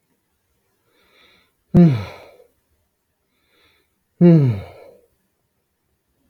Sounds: Sigh